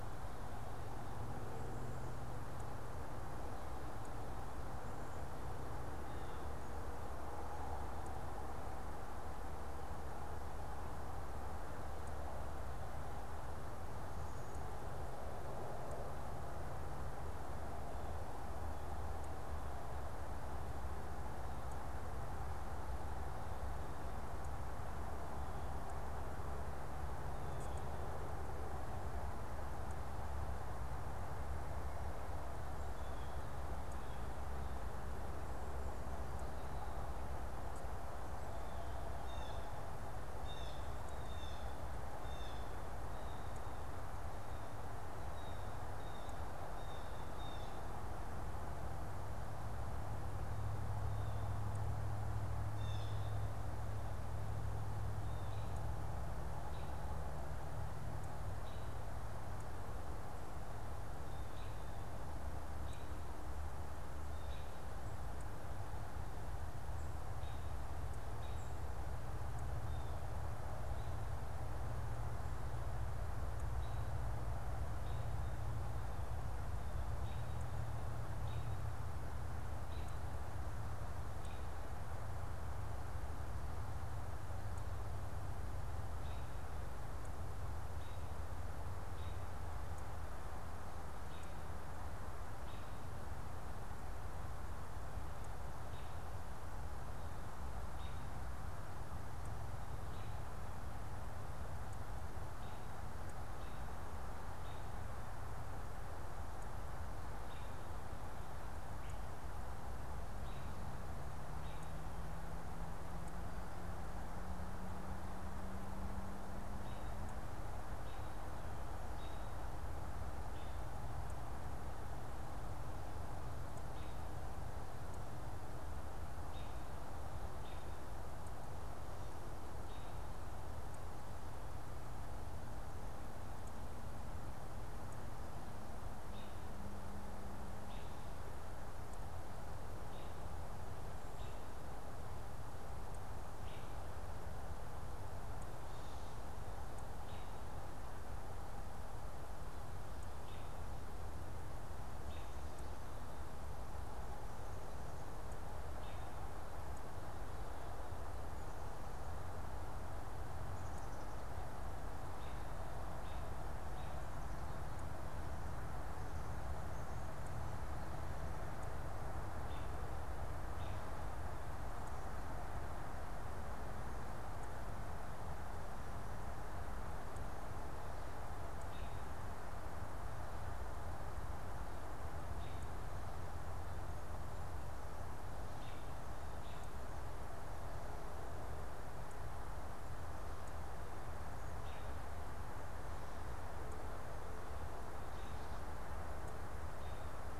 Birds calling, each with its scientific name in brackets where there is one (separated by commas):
Blue Jay (Cyanocitta cristata), American Robin (Turdus migratorius)